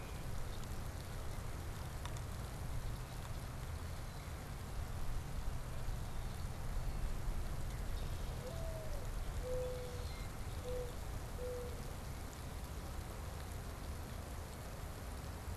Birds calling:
Common Grackle (Quiscalus quiscula), Mourning Dove (Zenaida macroura)

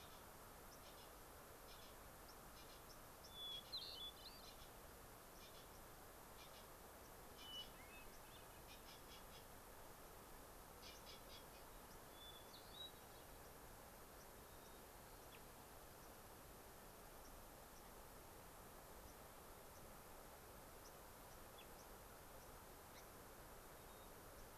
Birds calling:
Hermit Thrush (Catharus guttatus), White-crowned Sparrow (Zonotrichia leucophrys), Gray-crowned Rosy-Finch (Leucosticte tephrocotis)

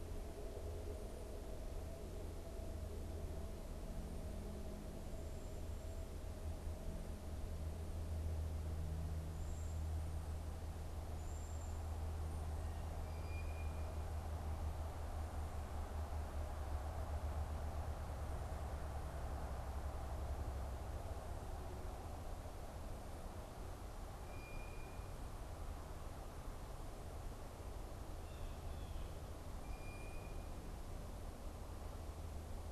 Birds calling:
Blue Jay (Cyanocitta cristata), Cedar Waxwing (Bombycilla cedrorum)

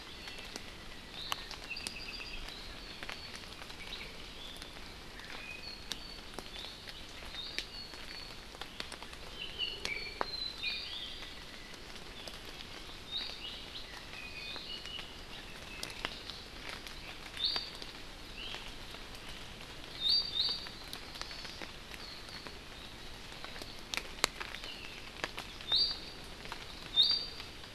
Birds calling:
Hawaii Amakihi (Chlorodrepanis virens), Apapane (Himatione sanguinea), Iiwi (Drepanis coccinea)

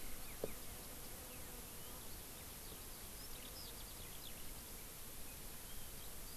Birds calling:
Eurasian Skylark (Alauda arvensis)

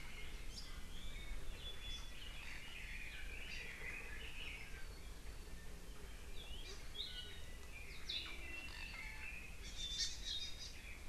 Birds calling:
Hawaii Amakihi (Chlorodrepanis virens), Red-billed Leiothrix (Leiothrix lutea)

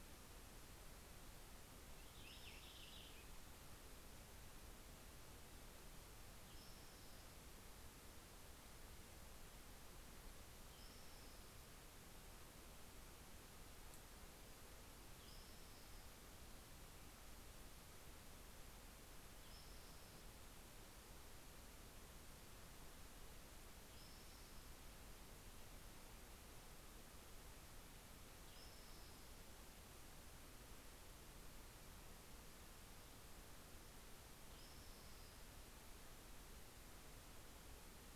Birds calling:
Purple Finch (Haemorhous purpureus), Spotted Towhee (Pipilo maculatus)

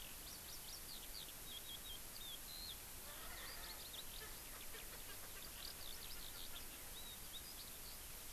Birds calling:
Erckel's Francolin (Pternistis erckelii), Eurasian Skylark (Alauda arvensis)

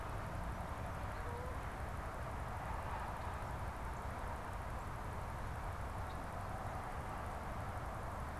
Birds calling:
Canada Goose (Branta canadensis)

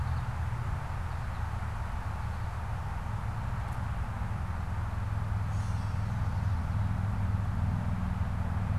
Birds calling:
Gray Catbird (Dumetella carolinensis), American Goldfinch (Spinus tristis)

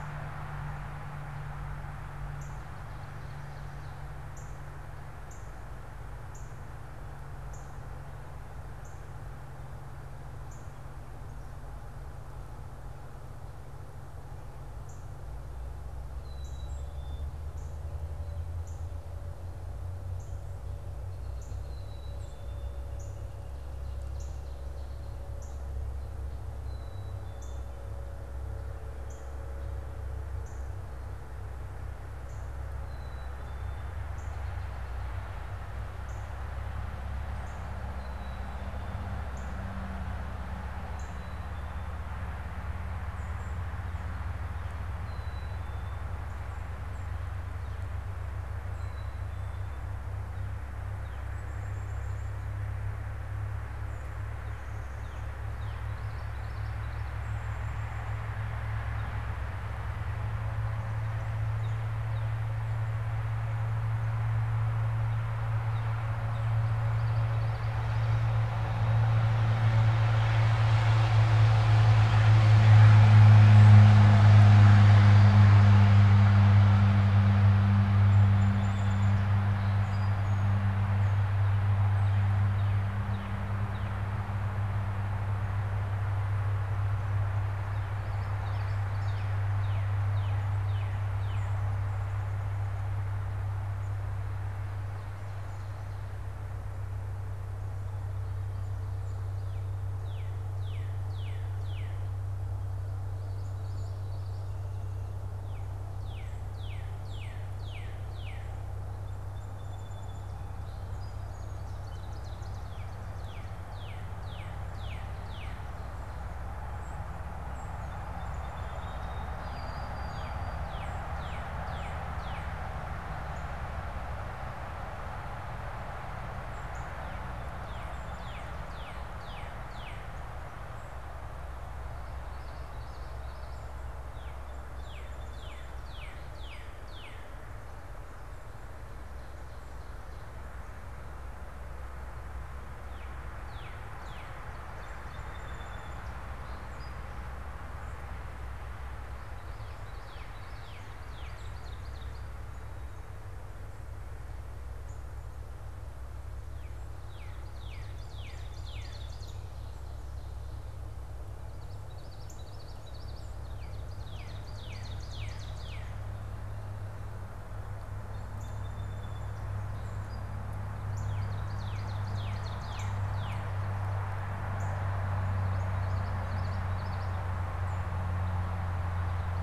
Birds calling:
Northern Cardinal (Cardinalis cardinalis), Ovenbird (Seiurus aurocapilla), Common Yellowthroat (Geothlypis trichas), White-throated Sparrow (Zonotrichia albicollis), Song Sparrow (Melospiza melodia), Black-capped Chickadee (Poecile atricapillus)

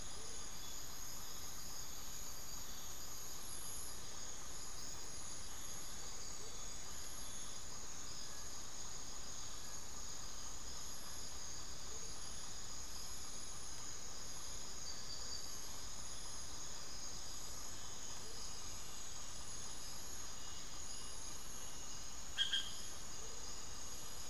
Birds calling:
Hauxwell's Thrush (Turdus hauxwelli), Amazonian Motmot (Momotus momota), Little Tinamou (Crypturellus soui), unidentified bird

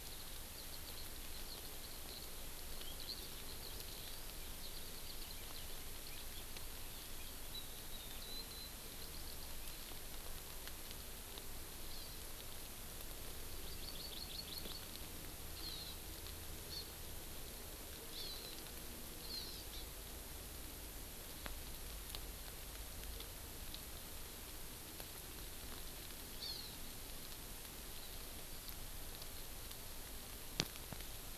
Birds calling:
Eurasian Skylark (Alauda arvensis), Hawaii Amakihi (Chlorodrepanis virens)

